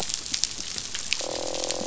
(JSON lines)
{"label": "biophony, croak", "recorder": "SoundTrap 500"}